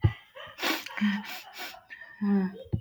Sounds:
Sniff